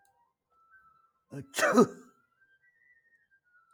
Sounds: Sneeze